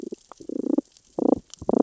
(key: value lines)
label: biophony, damselfish
recorder: SoundTrap 600 or HydroMoth